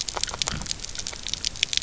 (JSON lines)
{"label": "biophony, grazing", "recorder": "SoundTrap 300"}